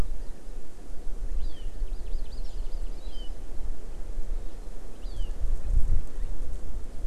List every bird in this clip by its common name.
Hawaii Amakihi